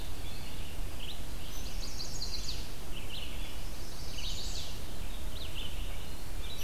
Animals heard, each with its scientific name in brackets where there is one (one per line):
Eastern Wood-Pewee (Contopus virens)
Red-eyed Vireo (Vireo olivaceus)
Chestnut-sided Warbler (Setophaga pensylvanica)